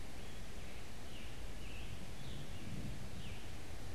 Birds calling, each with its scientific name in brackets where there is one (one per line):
Scarlet Tanager (Piranga olivacea)